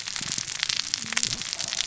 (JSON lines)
{"label": "biophony, cascading saw", "recorder": "SoundTrap 600 or HydroMoth"}